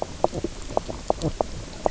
{"label": "biophony, knock croak", "recorder": "SoundTrap 300"}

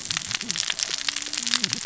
{"label": "biophony, cascading saw", "recorder": "SoundTrap 600 or HydroMoth"}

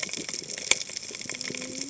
{"label": "biophony, cascading saw", "recorder": "HydroMoth"}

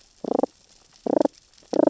{"label": "biophony, damselfish", "recorder": "SoundTrap 600 or HydroMoth"}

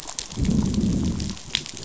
{"label": "biophony, growl", "recorder": "SoundTrap 500"}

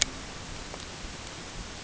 {"label": "ambient", "recorder": "HydroMoth"}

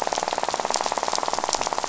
{"label": "biophony, rattle", "recorder": "SoundTrap 500"}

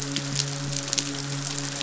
{"label": "biophony, midshipman", "recorder": "SoundTrap 500"}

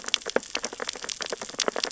{"label": "biophony, sea urchins (Echinidae)", "recorder": "SoundTrap 600 or HydroMoth"}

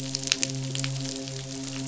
{"label": "biophony, midshipman", "recorder": "SoundTrap 500"}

